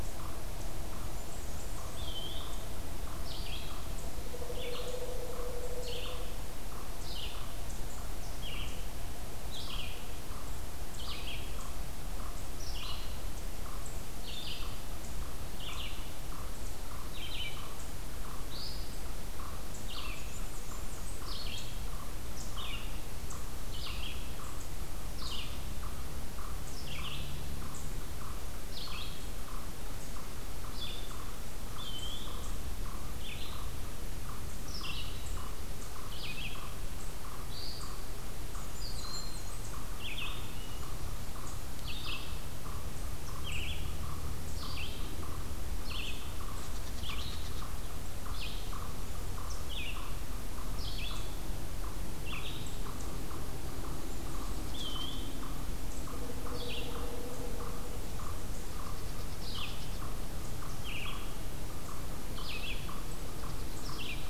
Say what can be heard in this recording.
Red-eyed Vireo, unknown mammal, Blackburnian Warbler, Eastern Wood-Pewee, Broad-winged Hawk